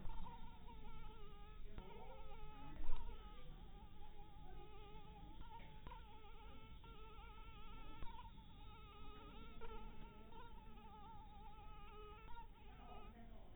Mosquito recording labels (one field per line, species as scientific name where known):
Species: mosquito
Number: one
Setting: cup